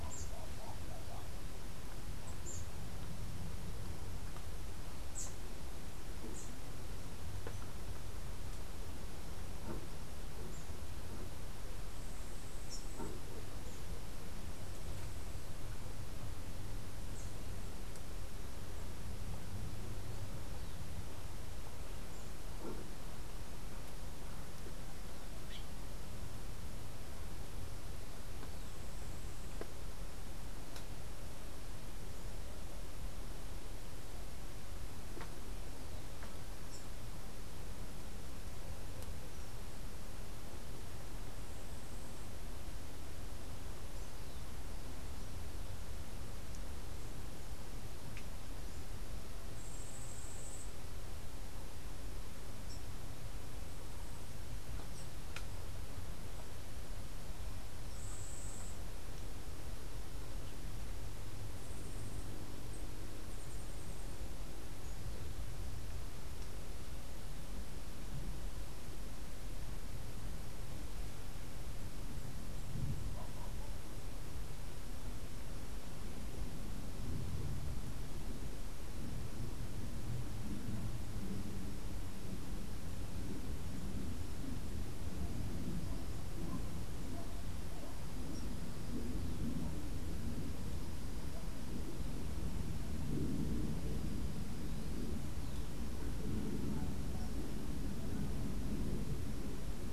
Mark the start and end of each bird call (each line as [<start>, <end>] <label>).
[49.52, 50.72] Yellow-faced Grassquit (Tiaris olivaceus)
[57.81, 58.81] Yellow-faced Grassquit (Tiaris olivaceus)